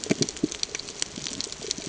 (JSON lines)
{"label": "ambient", "recorder": "HydroMoth"}